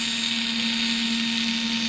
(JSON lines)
{"label": "anthrophony, boat engine", "recorder": "SoundTrap 500"}